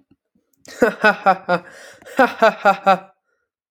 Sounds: Laughter